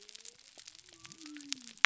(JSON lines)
{"label": "biophony", "recorder": "SoundTrap 300"}